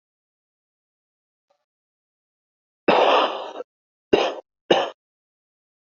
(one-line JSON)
{"expert_labels": [{"quality": "good", "cough_type": "dry", "dyspnea": false, "wheezing": false, "stridor": false, "choking": false, "congestion": false, "nothing": true, "diagnosis": "obstructive lung disease", "severity": "mild"}], "age": 24, "gender": "male", "respiratory_condition": false, "fever_muscle_pain": false, "status": "symptomatic"}